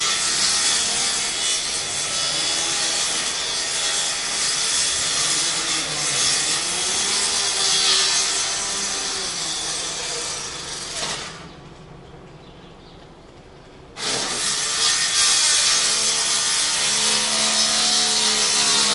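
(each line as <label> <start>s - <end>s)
Continuous metal grinding produces a loud mechanical whirring sound. 0.0s - 11.7s
Continuous metal grinding produces a sharp, loud screeching mechanical whirring sound. 14.0s - 18.9s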